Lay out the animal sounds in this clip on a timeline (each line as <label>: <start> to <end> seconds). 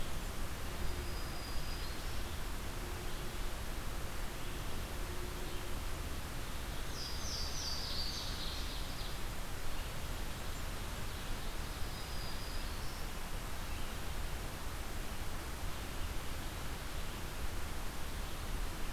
Black-throated Green Warbler (Setophaga virens): 0.6 to 2.2 seconds
Louisiana Waterthrush (Parkesia motacilla): 6.8 to 8.9 seconds
Ovenbird (Seiurus aurocapilla): 6.9 to 9.3 seconds
Black-throated Green Warbler (Setophaga virens): 11.6 to 13.1 seconds